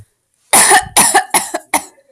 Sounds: Cough